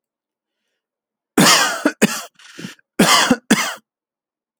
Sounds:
Cough